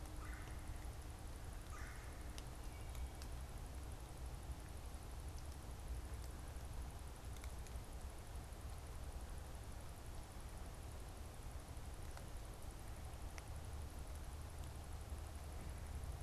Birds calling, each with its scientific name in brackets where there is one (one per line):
Red-bellied Woodpecker (Melanerpes carolinus)